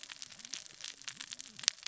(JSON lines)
{"label": "biophony, cascading saw", "recorder": "SoundTrap 600 or HydroMoth"}